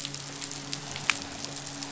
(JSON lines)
{"label": "biophony, midshipman", "recorder": "SoundTrap 500"}